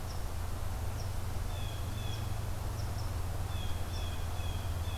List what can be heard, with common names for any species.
Red Squirrel, Blue Jay